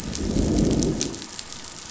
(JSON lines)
{"label": "biophony, growl", "recorder": "SoundTrap 500"}